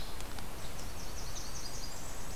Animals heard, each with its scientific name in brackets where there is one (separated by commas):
Blackburnian Warbler (Setophaga fusca)